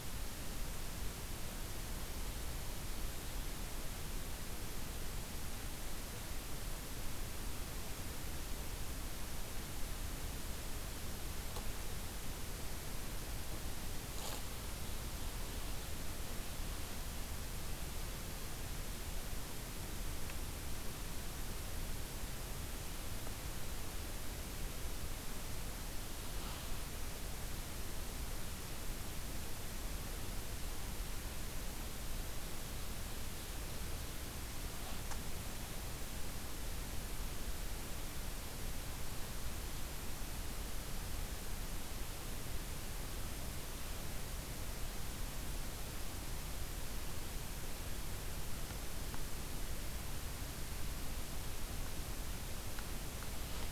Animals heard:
forest ambience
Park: Acadia National Park